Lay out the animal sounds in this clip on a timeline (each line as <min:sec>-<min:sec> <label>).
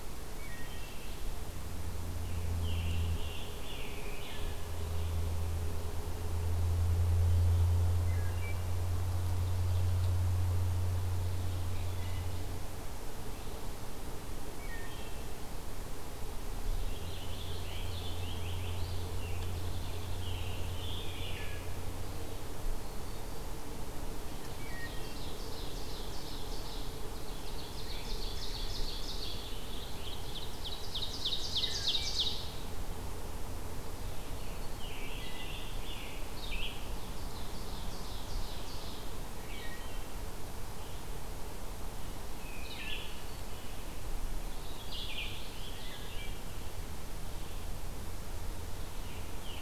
0:00.0-0:01.5 Wood Thrush (Hylocichla mustelina)
0:02.3-0:04.5 Scarlet Tanager (Piranga olivacea)
0:04.0-0:04.8 Wood Thrush (Hylocichla mustelina)
0:08.0-0:08.6 Wood Thrush (Hylocichla mustelina)
0:08.9-0:10.1 Ovenbird (Seiurus aurocapilla)
0:11.7-0:12.3 Wood Thrush (Hylocichla mustelina)
0:14.2-0:15.3 Wood Thrush (Hylocichla mustelina)
0:16.7-0:20.4 Purple Finch (Haemorhous purpureus)
0:20.1-0:21.6 Scarlet Tanager (Piranga olivacea)
0:20.9-0:21.7 Wood Thrush (Hylocichla mustelina)
0:24.4-0:25.4 Wood Thrush (Hylocichla mustelina)
0:24.5-0:29.5 Ovenbird (Seiurus aurocapilla)
0:28.4-0:30.4 Scarlet Tanager (Piranga olivacea)
0:29.8-0:32.7 Ovenbird (Seiurus aurocapilla)
0:31.5-0:32.2 Wood Thrush (Hylocichla mustelina)
0:34.6-0:36.4 Scarlet Tanager (Piranga olivacea)
0:36.2-0:49.6 Red-eyed Vireo (Vireo olivaceus)
0:36.7-0:39.0 Ovenbird (Seiurus aurocapilla)
0:39.3-0:40.1 Wood Thrush (Hylocichla mustelina)
0:42.4-0:43.2 Wood Thrush (Hylocichla mustelina)
0:44.4-0:46.3 Scarlet Tanager (Piranga olivacea)
0:45.8-0:46.6 Wood Thrush (Hylocichla mustelina)
0:48.8-0:49.6 Scarlet Tanager (Piranga olivacea)